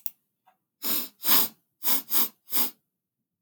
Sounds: Sniff